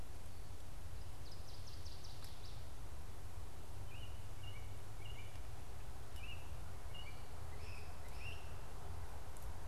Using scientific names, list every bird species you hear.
Parkesia noveboracensis, Turdus migratorius, Myiarchus crinitus